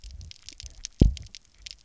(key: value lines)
label: biophony, double pulse
recorder: SoundTrap 300